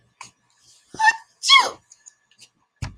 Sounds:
Sneeze